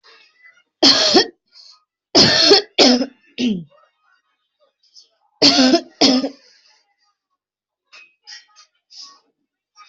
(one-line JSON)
{"expert_labels": [{"quality": "ok", "cough_type": "dry", "dyspnea": false, "wheezing": false, "stridor": false, "choking": false, "congestion": false, "nothing": true, "diagnosis": "COVID-19", "severity": "mild"}], "age": 34, "gender": "female", "respiratory_condition": false, "fever_muscle_pain": false, "status": "healthy"}